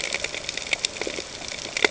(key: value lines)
label: ambient
recorder: HydroMoth